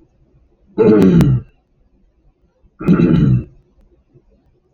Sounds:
Throat clearing